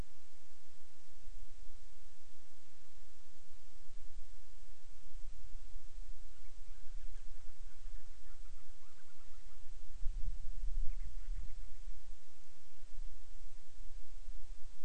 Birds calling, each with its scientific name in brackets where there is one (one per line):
Band-rumped Storm-Petrel (Hydrobates castro)